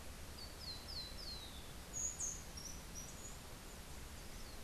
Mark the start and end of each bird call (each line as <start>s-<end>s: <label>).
0.3s-1.9s: Rufous-collared Sparrow (Zonotrichia capensis)
1.8s-3.4s: Rufous-tailed Hummingbird (Amazilia tzacatl)